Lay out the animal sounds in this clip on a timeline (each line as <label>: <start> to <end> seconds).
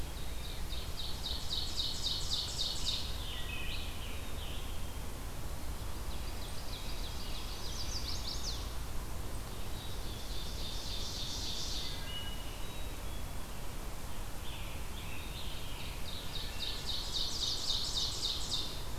Ovenbird (Seiurus aurocapilla): 0.1 to 3.2 seconds
Scarlet Tanager (Piranga olivacea): 2.4 to 5.0 seconds
Ovenbird (Seiurus aurocapilla): 5.7 to 7.7 seconds
Chestnut-sided Warbler (Setophaga pensylvanica): 7.5 to 8.8 seconds
Ovenbird (Seiurus aurocapilla): 9.6 to 12.1 seconds
Wood Thrush (Hylocichla mustelina): 11.8 to 12.7 seconds
Black-capped Chickadee (Poecile atricapillus): 12.5 to 13.5 seconds
Scarlet Tanager (Piranga olivacea): 13.9 to 17.2 seconds
Ovenbird (Seiurus aurocapilla): 15.7 to 19.0 seconds